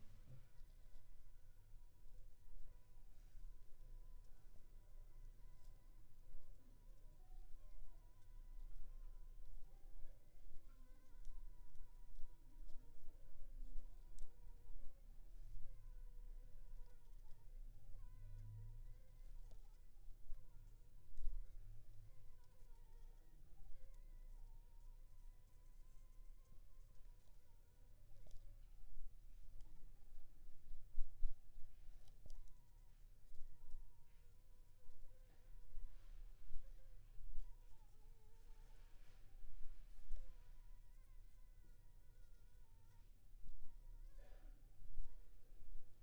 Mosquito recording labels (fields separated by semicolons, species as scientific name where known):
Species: Anopheles funestus s.s.; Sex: female; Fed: unfed; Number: one; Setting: cup